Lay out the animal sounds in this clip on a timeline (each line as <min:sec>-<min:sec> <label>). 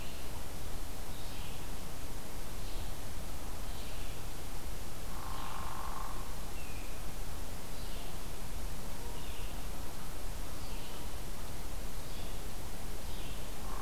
0:00.0-0:00.5 Canada Goose (Branta canadensis)
0:00.0-0:13.8 Red-eyed Vireo (Vireo olivaceus)
0:05.0-0:06.3 Hairy Woodpecker (Dryobates villosus)
0:06.5-0:07.1 Broad-winged Hawk (Buteo platypterus)